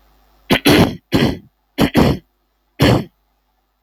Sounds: Throat clearing